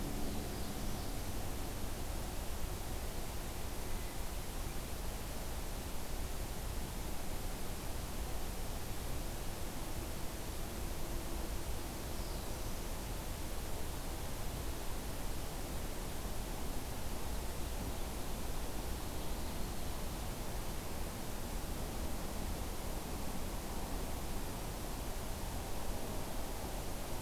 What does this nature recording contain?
Black-throated Blue Warbler